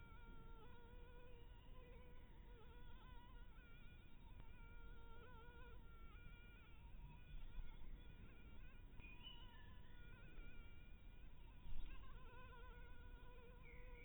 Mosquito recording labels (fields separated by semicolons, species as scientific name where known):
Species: Anopheles maculatus; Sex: female; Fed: blood-fed; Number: one; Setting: cup